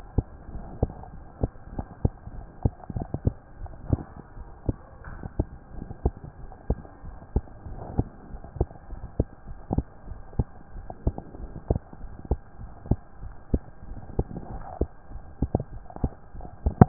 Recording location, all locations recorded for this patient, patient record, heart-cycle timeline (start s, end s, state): pulmonary valve (PV)
aortic valve (AV)+pulmonary valve (PV)+tricuspid valve (TV)+mitral valve (MV)
#Age: Child
#Sex: Female
#Height: nan
#Weight: nan
#Pregnancy status: False
#Murmur: Absent
#Murmur locations: nan
#Most audible location: nan
#Systolic murmur timing: nan
#Systolic murmur shape: nan
#Systolic murmur grading: nan
#Systolic murmur pitch: nan
#Systolic murmur quality: nan
#Diastolic murmur timing: nan
#Diastolic murmur shape: nan
#Diastolic murmur grading: nan
#Diastolic murmur pitch: nan
#Diastolic murmur quality: nan
#Outcome: Abnormal
#Campaign: 2015 screening campaign
0.00	0.50	unannotated
0.50	0.66	S1
0.66	0.80	systole
0.80	0.94	S2
0.94	1.14	diastole
1.14	1.22	S1
1.22	1.38	systole
1.38	1.52	S2
1.52	1.72	diastole
1.72	1.86	S1
1.86	2.00	systole
2.00	2.12	S2
2.12	2.32	diastole
2.32	2.46	S1
2.46	2.60	systole
2.60	2.74	S2
2.74	2.94	diastole
2.94	3.08	S1
3.08	3.22	systole
3.22	3.36	S2
3.36	3.60	diastole
3.60	3.74	S1
3.74	3.90	systole
3.90	4.06	S2
4.06	4.34	diastole
4.34	4.46	S1
4.46	4.64	systole
4.64	4.78	S2
4.78	5.06	diastole
5.06	5.20	S1
5.20	5.34	systole
5.34	5.48	S2
5.48	5.74	diastole
5.74	5.88	S1
5.88	6.02	systole
6.02	6.14	S2
6.14	6.40	diastole
6.40	6.48	S1
6.48	6.66	systole
6.66	6.80	S2
6.80	7.06	diastole
7.06	7.18	S1
7.18	7.32	systole
7.32	7.46	S2
7.46	7.66	diastole
7.66	7.80	S1
7.80	7.96	systole
7.96	8.08	S2
8.08	8.32	diastole
8.32	8.42	S1
8.42	8.56	systole
8.56	8.70	S2
8.70	8.90	diastole
8.90	9.02	S1
9.02	9.18	systole
9.18	9.28	S2
9.28	9.48	diastole
9.48	9.58	S1
9.58	9.70	systole
9.70	9.86	S2
9.86	10.08	diastole
10.08	10.20	S1
10.20	10.36	systole
10.36	10.46	S2
10.46	10.74	diastole
10.74	10.84	S1
10.84	11.02	systole
11.02	11.16	S2
11.16	11.38	diastole
11.38	11.52	S1
11.52	11.66	systole
11.66	11.80	S2
11.80	12.02	diastole
12.02	12.14	S1
12.14	12.30	systole
12.30	12.40	S2
12.40	12.60	diastole
12.60	12.70	S1
12.70	12.86	systole
12.86	13.00	S2
13.00	13.22	diastole
13.22	13.34	S1
13.34	13.50	systole
13.50	13.64	S2
13.64	13.88	diastole
13.88	14.02	S1
14.02	14.16	systole
14.16	14.28	S2
14.28	14.50	diastole
14.50	14.64	S1
14.64	14.78	systole
14.78	14.92	S2
14.92	15.12	diastole
15.12	15.22	S1
15.22	16.88	unannotated